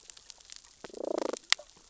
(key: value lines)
label: biophony, damselfish
recorder: SoundTrap 600 or HydroMoth